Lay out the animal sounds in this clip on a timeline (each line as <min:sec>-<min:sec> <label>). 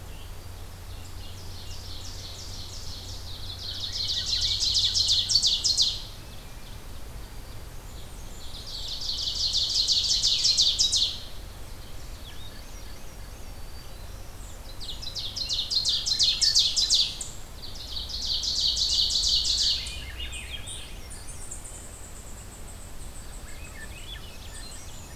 0:00.0-0:00.8 Black-throated Green Warbler (Setophaga virens)
0:00.5-0:06.9 Ovenbird (Seiurus aurocapilla)
0:03.3-0:05.8 Swainson's Thrush (Catharus ustulatus)
0:07.0-0:08.2 Black-throated Green Warbler (Setophaga virens)
0:07.6-0:09.0 Blackburnian Warbler (Setophaga fusca)
0:08.2-0:11.4 Ovenbird (Seiurus aurocapilla)
0:11.7-0:14.2 Swainson's Thrush (Catharus ustulatus)
0:13.3-0:14.5 Black-throated Green Warbler (Setophaga virens)
0:14.6-0:19.9 Ovenbird (Seiurus aurocapilla)
0:15.8-0:17.0 Swainson's Thrush (Catharus ustulatus)
0:19.4-0:21.7 Swainson's Thrush (Catharus ustulatus)
0:19.7-0:25.1 unknown mammal
0:23.2-0:25.1 Swainson's Thrush (Catharus ustulatus)